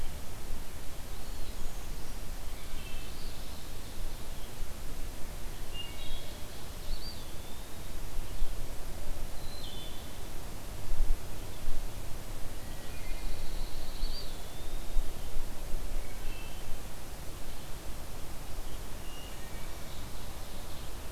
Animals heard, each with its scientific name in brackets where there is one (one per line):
Ovenbird (Seiurus aurocapilla)
Pine Warbler (Setophaga pinus)
Brown Creeper (Certhia americana)
Eastern Wood-Pewee (Contopus virens)
Wood Thrush (Hylocichla mustelina)